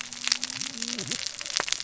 {"label": "biophony, cascading saw", "recorder": "SoundTrap 600 or HydroMoth"}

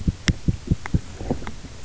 {"label": "biophony, knock", "recorder": "SoundTrap 300"}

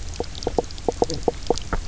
{"label": "biophony, knock croak", "recorder": "SoundTrap 300"}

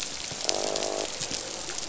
{"label": "biophony, croak", "recorder": "SoundTrap 500"}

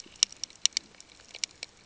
{"label": "ambient", "recorder": "HydroMoth"}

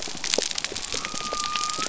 {"label": "biophony", "recorder": "SoundTrap 300"}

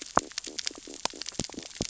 {"label": "biophony, stridulation", "recorder": "SoundTrap 600 or HydroMoth"}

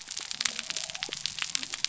{"label": "biophony", "recorder": "SoundTrap 300"}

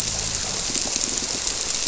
{"label": "biophony", "recorder": "SoundTrap 300"}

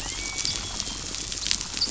{"label": "biophony, dolphin", "recorder": "SoundTrap 500"}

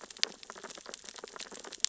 {"label": "biophony, sea urchins (Echinidae)", "recorder": "SoundTrap 600 or HydroMoth"}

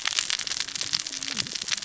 {"label": "biophony, cascading saw", "recorder": "SoundTrap 600 or HydroMoth"}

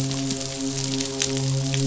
{"label": "biophony, midshipman", "recorder": "SoundTrap 500"}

